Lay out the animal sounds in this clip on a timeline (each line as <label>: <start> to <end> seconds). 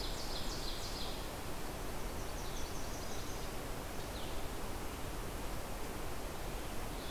Ovenbird (Seiurus aurocapilla): 0.0 to 1.0 seconds
Blue-headed Vireo (Vireo solitarius): 0.0 to 7.1 seconds
Yellow-rumped Warbler (Setophaga coronata): 1.5 to 3.5 seconds